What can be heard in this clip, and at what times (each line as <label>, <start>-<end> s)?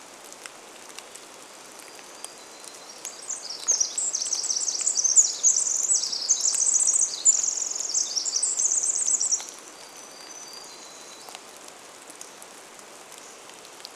Hermit Warbler song, 0-4 s
rain, 0-14 s
Pacific Wren song, 2-10 s
Hermit Warbler song, 8-12 s
Hammond's Flycatcher song, 12-14 s